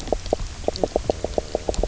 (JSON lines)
{"label": "biophony, knock croak", "recorder": "SoundTrap 300"}